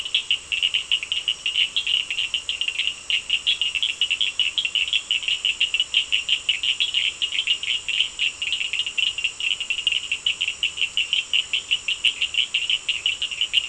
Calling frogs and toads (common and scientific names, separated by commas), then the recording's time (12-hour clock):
Cochran's lime tree frog (Sphaenorhynchus surdus)
8:15pm